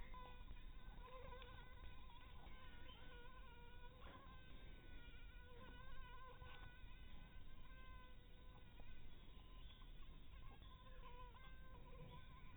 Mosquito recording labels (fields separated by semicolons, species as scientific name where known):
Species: Anopheles dirus; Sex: female; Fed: unfed; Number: one; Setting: cup